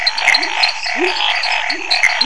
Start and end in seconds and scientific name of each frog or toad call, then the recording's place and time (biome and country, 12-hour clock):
0.0	2.2	Boana raniceps
0.0	2.2	Dendropsophus nanus
0.0	2.2	Leptodactylus labyrinthicus
0.0	2.2	Scinax fuscovarius
2.0	2.1	Pithecopus azureus
Cerrado, Brazil, 8:15pm